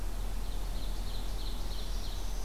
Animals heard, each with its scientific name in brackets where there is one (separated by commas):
Black-throated Green Warbler (Setophaga virens), Ovenbird (Seiurus aurocapilla)